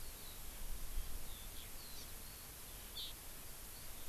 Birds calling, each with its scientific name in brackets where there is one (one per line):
Hawaii Amakihi (Chlorodrepanis virens)
Eurasian Skylark (Alauda arvensis)